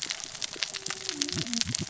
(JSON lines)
{"label": "biophony, cascading saw", "recorder": "SoundTrap 600 or HydroMoth"}